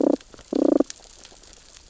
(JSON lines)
{"label": "biophony, damselfish", "recorder": "SoundTrap 600 or HydroMoth"}